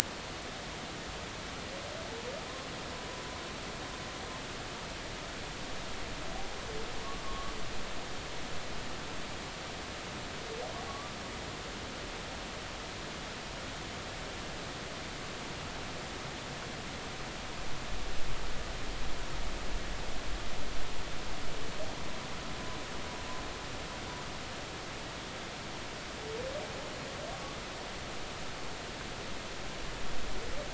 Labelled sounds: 7.2	7.5	humpback whale, 1.0 to 1.2 kHz
10.9	11.1	humpback whale, 1.1 to 1.2 kHz

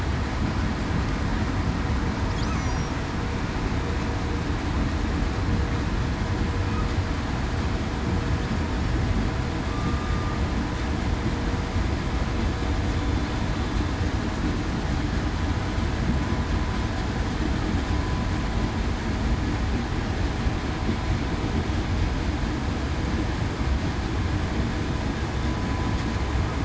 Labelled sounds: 2.6	2.9	killer whale, southern resident, 5.6 to 6.0 kHz
9.7	10.3	killer whale, southern resident, 1.1 to 1.2 kHz

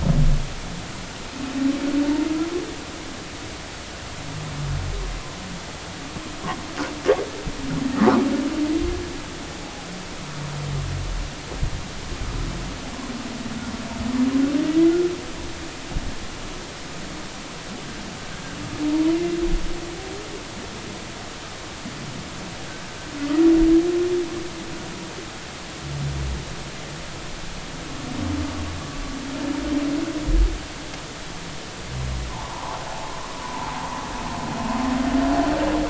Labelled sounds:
32.3	33.7	humpback whale, 0.80 to 1.2 kHz

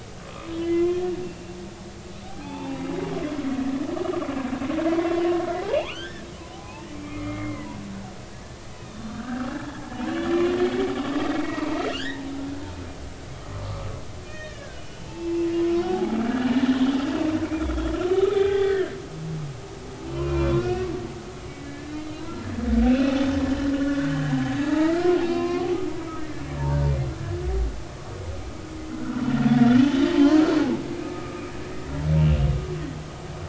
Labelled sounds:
0.2	1.1	humpback whale, 0.99 to 3.5 kHz
2.2	2.9	humpback whale, 0.80 to 3.6 kHz
4.9	5.3	humpback whale, 3.0 to 3.5 kHz
5.6	7.7	humpback whale, 0.80 to 3.6 kHz
8.7	12.2	humpback whale, 0.80 to 3.9 kHz
14.2	15.5	humpback whale, 1.4 to 3.8 kHz
15.8	16.8	humpback whale, 0.80 to 1.8 kHz
18.3	18.9	humpback whale, 0.80 to 3.5 kHz
20.1	20.9	humpback whale, 0.90 to 3.5 kHz
21.5	22.8	humpback whale, 1.2 to 2.3 kHz
23.8	26.8	humpback whale, 0.83 to 5.0 kHz
29.0	29.2	humpback whale, 1.3 to 1.5 kHz
29.5	30.4	humpback whale, 0.80 to 3.1 kHz
31.0	31.4	humpback whale, 1.2 to 1.3 kHz
32.2	32.4	humpback whale, 2.6 to 3.0 kHz

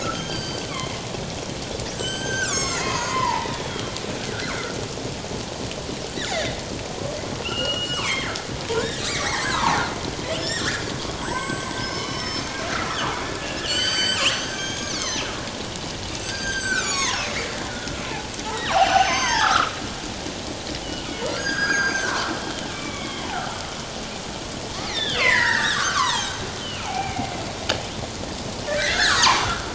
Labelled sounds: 0.0	0.9	killer whale, northern resident, G clan, 1.2 to 6.7 kHz
1.9	3.9	killer whale, northern resident, G clan, 0.81 to 7.9 kHz
7.4	9.8	killer whale, northern resident, G clan, 0.78 to 7.9 kHz
10.4	15.2	killer whale, northern resident, G clan, 0.91 to 7.9 kHz
16.2	18.3	killer whale, northern resident, G clan, 0.78 to 8.0 kHz
18.7	19.7	killer whale, northern resident, G clan, 0.78 to 7.9 kHz
21.4	23.5	killer whale, northern resident, G clan, 0.78 to 6.7 kHz
24.9	26.3	killer whale, northern resident, G clan, 0.78 to 5.2 kHz
26.6	27.4	killer whale, northern resident, G clan, 0.78 to 3.2 kHz
28.7	29.7	killer whale, northern resident, G clan, 0.78 to 3.6 kHz

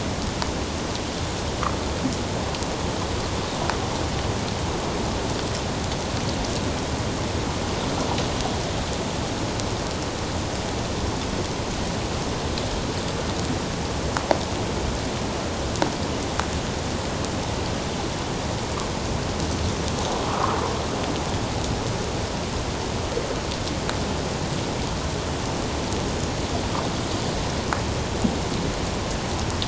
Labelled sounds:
20.3	20.6	water noise, 0.97 to 1.4 kHz

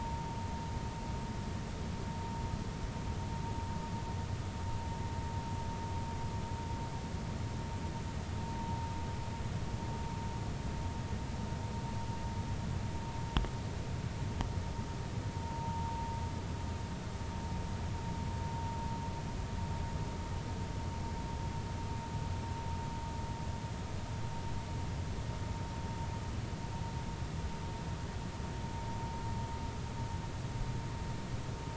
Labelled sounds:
15.4	16.0	vessel noise, 0.86 to 1.0 kHz

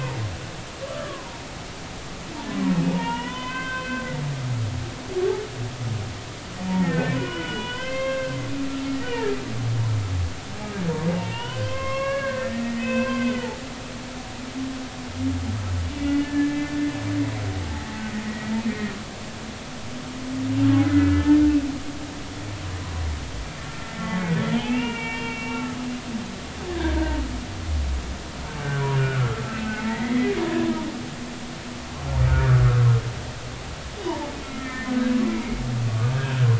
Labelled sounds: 1.0	1.2	humpback whale, 0.96 to 1.2 kHz
2.7	4.0	humpback whale, 0.86 to 3.6 kHz
6.7	8.4	humpback whale, 0.80 to 3.3 kHz
9.1	9.3	humpback whale, 1.6 to 2.0 kHz
11.1	13.5	humpback whale, 0.83 to 3.3 kHz
16.0	16.9	humpback whale, 1.6 to 2.9 kHz
17.5	18.9	humpback whale, 1.8 to 2.1 kHz
20.8	21.4	humpback whale, 1.7 to 2.4 kHz
24.5	25.8	humpback whale, 0.80 to 3.2 kHz
26.7	27.2	humpback whale, 0.86 to 1.8 kHz
29.0	30.8	humpback whale, 0.83 to 2.7 kHz
32.3	32.7	humpback whale, 1.2 to 1.6 kHz
34.0	36.3	humpback whale, 0.83 to 2.5 kHz

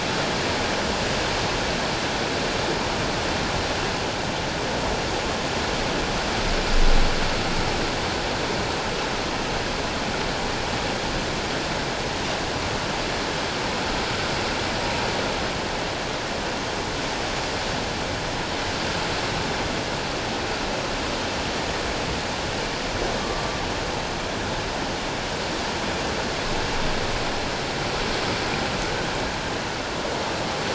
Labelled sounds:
23.2	23.6	humpback whale, 1.1 to 1.2 kHz

